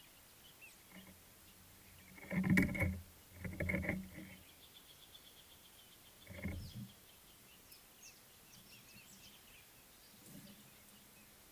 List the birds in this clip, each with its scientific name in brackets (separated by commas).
Speckled Mousebird (Colius striatus), Northern Puffback (Dryoscopus gambensis)